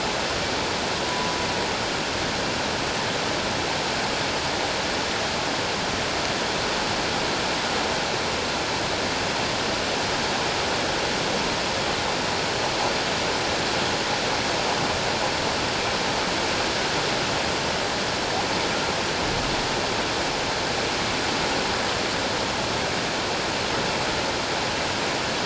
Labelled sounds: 1.0	1.3	humpback whale, 0.97 to 1.0 kHz

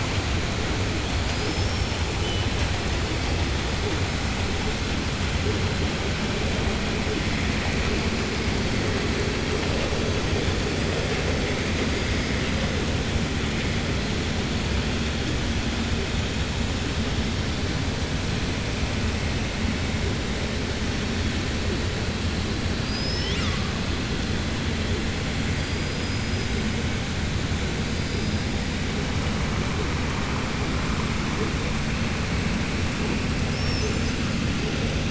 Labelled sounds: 1.2	1.9	killer whale, southern resident, 4.4 to 5.6 kHz
22.7	23.7	killer whale, southern resident, 1.1 to 7.5 kHz

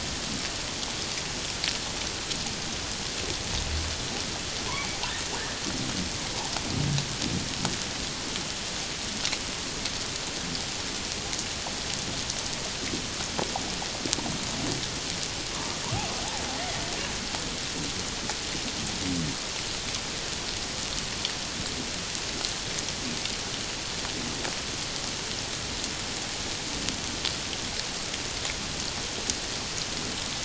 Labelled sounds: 4.7	5.0	humpback whale, 2.1 to 2.3 kHz

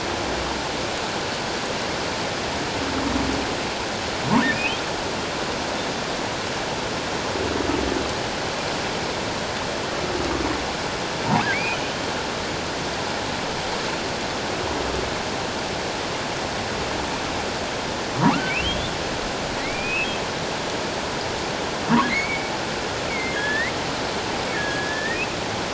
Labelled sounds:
4.5	4.8	humpback whale, 2.2 to 2.8 kHz
11.5	12.0	humpback whale, 1.9 to 3.2 kHz
18.2	18.9	humpback whale, 0.78 to 3.7 kHz
19.6	20.2	humpback whale, 1.9 to 2.8 kHz
22.1	22.5	humpback whale, 1.9 to 2.3 kHz
23.1	23.7	humpback whale, 1.6 to 3.7 kHz
24.5	25.2	humpback whale, 1.6 to 1.9 kHz

